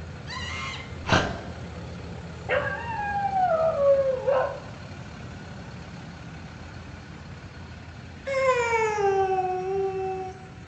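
At 0.26 seconds, someone screams. Then, at 1.01 seconds, a dog can be heard. After that, at 2.47 seconds, a dog is heard. Finally, at 8.25 seconds, a dog is audible.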